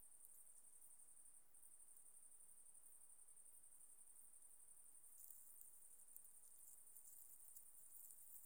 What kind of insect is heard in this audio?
orthopteran